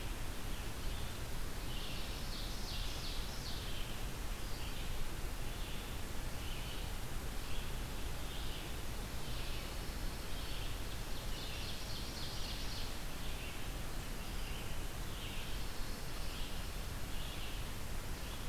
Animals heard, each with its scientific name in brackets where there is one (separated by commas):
Red-eyed Vireo (Vireo olivaceus), Pine Warbler (Setophaga pinus), Ovenbird (Seiurus aurocapilla)